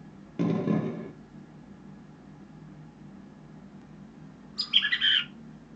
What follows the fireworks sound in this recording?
bird vocalization